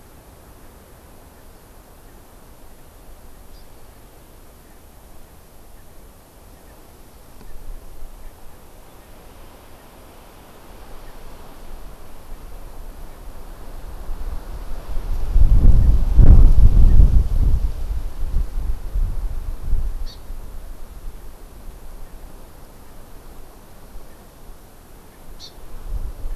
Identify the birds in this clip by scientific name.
Chlorodrepanis virens